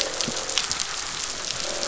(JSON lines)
{"label": "biophony, croak", "recorder": "SoundTrap 500"}